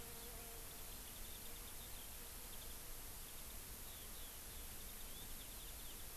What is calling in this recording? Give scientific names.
Zosterops japonicus, Alauda arvensis